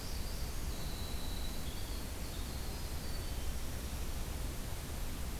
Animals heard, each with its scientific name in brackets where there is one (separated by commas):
Northern Parula (Setophaga americana), Winter Wren (Troglodytes hiemalis)